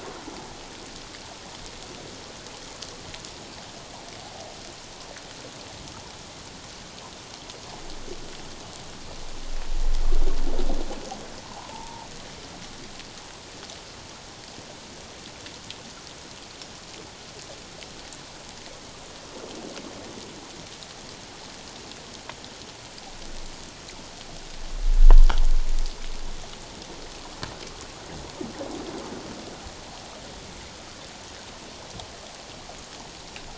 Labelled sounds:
11.4	12.1	humpback whale, 0.78 to 1.1 kHz

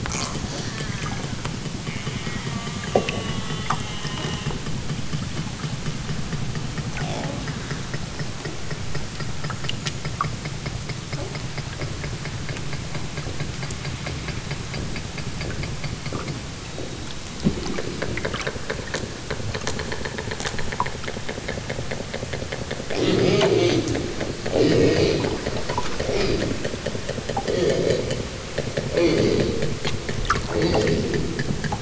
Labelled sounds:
0.0	1.4	killer whale, southern Alaska resident, 0.51 to 6.7 kHz
1.8	4.7	killer whale, southern Alaska resident, 0.78 to 3.5 kHz
6.8	8.0	killer whale, southern Alaska resident, 0.32 to 5.6 kHz
22.8	24.0	killer whale, southern Alaska resident, 0 to 6.3 kHz
24.4	25.4	killer whale, southern Alaska resident, 0 to 6.0 kHz
25.8	26.8	killer whale, southern Alaska resident, 0 to 5.7 kHz
27.3	28.4	killer whale, southern Alaska resident, 0 to 5.9 kHz
28.8	29.6	killer whale, southern Alaska resident, 0 to 5.3 kHz
30.4	31.5	killer whale, southern Alaska resident, 0 to 5.9 kHz

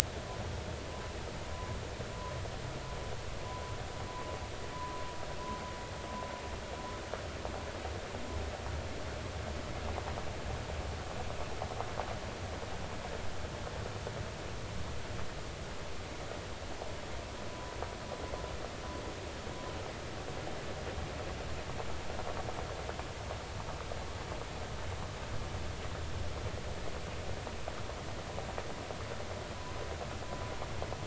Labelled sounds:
1.5	1.8	humpback whale, 0.96 to 1.1 kHz
17.5	17.7	humpback whale, 0.96 to 1.1 kHz

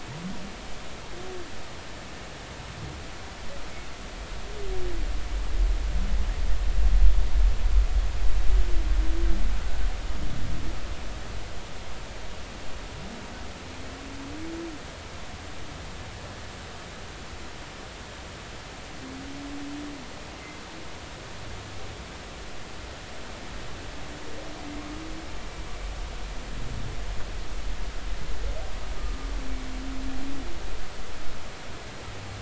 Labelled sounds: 20.4	20.6	humpback whale, 2.0 to 2.1 kHz

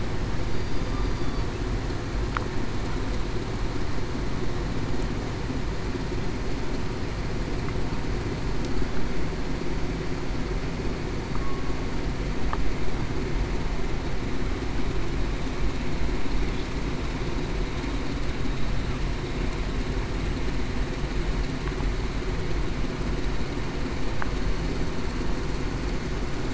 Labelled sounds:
0.4	1.5	killer whale, southern resident, 3.4 to 4.8 kHz

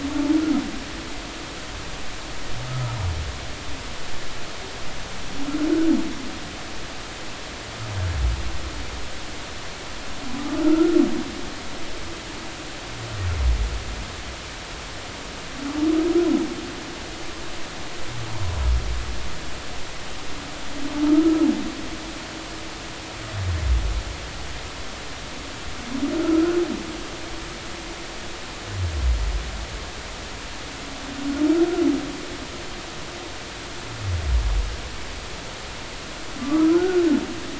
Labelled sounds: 2.7	2.9	humpback whale, 1.2 to 1.4 kHz
10.6	11.0	humpback whale, 1.3 to 1.5 kHz
26.1	26.5	humpback whale, 1.2 to 1.5 kHz
36.4	37.1	humpback whale, 1.1 to 1.6 kHz

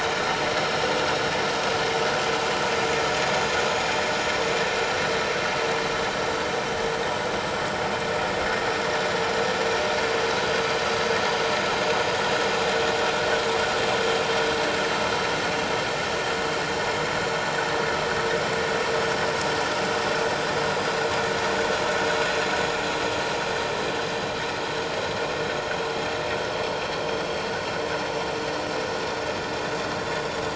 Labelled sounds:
9.9	10.2	vessel noise, 4.6 to 4.8 kHz

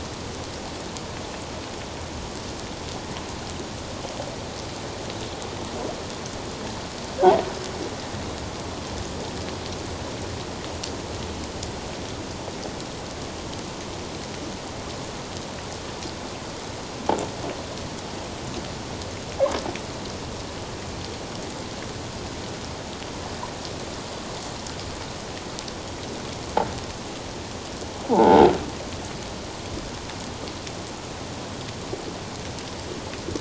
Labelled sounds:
28.1	28.5	croaking sound likely from a nearby submerged object, 0.78 to 1.0 kHz

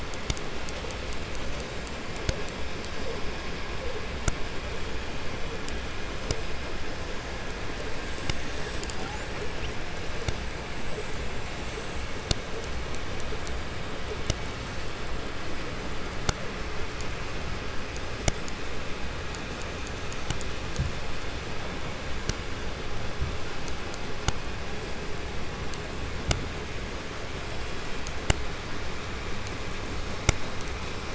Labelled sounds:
8.9	9.9	killer whale, 0.41 to 7.6 kHz

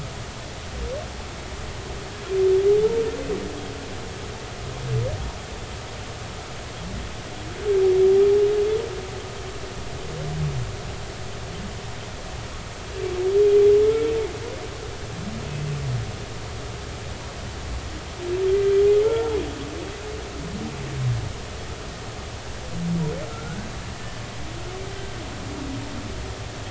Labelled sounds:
13.9	14.1	humpback whale, 1.3 to 1.4 kHz
19.0	19.4	humpback whale, 0.83 to 1.4 kHz
23.3	24.2	humpback whale, 1.2 to 1.8 kHz

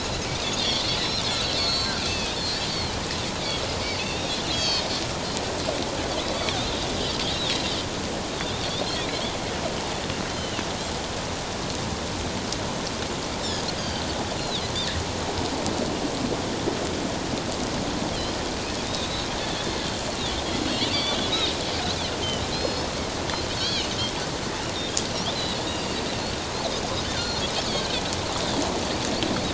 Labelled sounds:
0.6	2.7	Pacific white-sided dolphin, 2.3 to 8.0 kHz
4.0	4.9	Pacific white-sided dolphin, 2.5 to 6.6 kHz
9.0	9.2	Pacific white-sided dolphin, 2.2 to 2.6 kHz
10.3	10.6	Pacific white-sided dolphin, 2.6 to 4.2 kHz
13.8	14.0	Pacific white-sided dolphin, 3.0 to 4.9 kHz
14.4	14.6	Pacific white-sided dolphin, 3.2 to 4.3 kHz
18.8	19.3	Pacific white-sided dolphin, 3.5 to 4.1 kHz
20.6	21.2	Pacific white-sided dolphin, 4.0 to 4.7 kHz
22.5	23.9	Pacific white-sided dolphin, 2.8 to 5.4 kHz
25.8	26.4	Pacific white-sided dolphin, 3.9 to 4.8 kHz
27.2	28.0	Pacific white-sided dolphin, 2.9 to 4.3 kHz

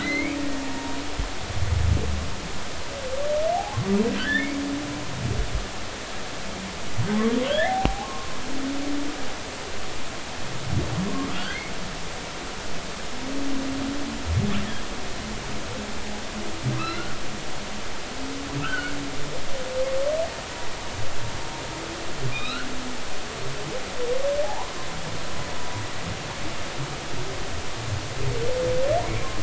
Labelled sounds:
0.0	1.0	humpback whale, 0.90 to 4.2 kHz
4.2	4.5	humpback whale, 1.4 to 2.0 kHz
7.4	8.1	humpback whale, 0.80 to 3.7 kHz
9.0	9.4	humpback whale, 0.99 to 1.2 kHz
11.3	11.6	humpback whale, 1.3 to 3.3 kHz
16.8	17.2	humpback whale, 0.99 to 2.9 kHz
18.6	19.0	humpback whale, 1.2 to 1.6 kHz
22.3	22.7	humpback whale, 1.2 to 4.3 kHz
24.4	24.7	humpback whale, 0.80 to 1.1 kHz

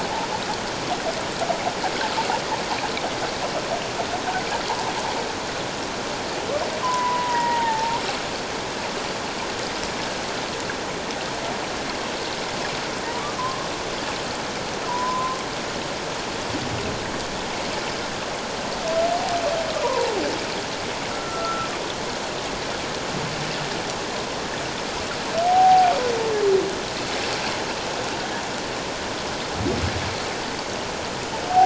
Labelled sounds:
6.8	8.0	humpback whale, 0.81 to 1.9 kHz
13.4	13.7	humpback whale, 0.97 to 1.1 kHz
14.9	15.4	humpback whale, 0.88 to 1.1 kHz
19.7	20.1	humpback whale, 0.81 to 1.3 kHz
21.1	21.7	humpback whale, 1.2 to 1.5 kHz
25.4	25.9	humpback whale, 0.78 to 0.84 kHz

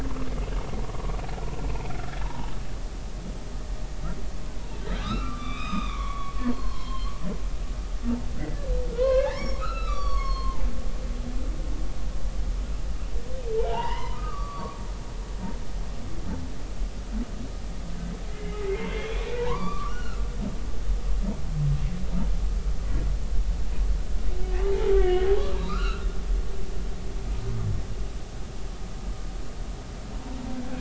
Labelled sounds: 1.7	2.5	humpback whale, 0.80 to 2.7 kHz
5.0	7.1	humpback whale, 0.96 to 6.4 kHz
8.9	10.6	humpback whale, 0.80 to 6.6 kHz
13.6	14.8	humpback whale, 0.80 to 4.6 kHz
18.3	20.2	humpback whale, 0.86 to 3.6 kHz
25.0	25.3	humpback whale, 1.7 to 2.3 kHz
25.7	26.1	humpback whale, 1.1 to 3.0 kHz

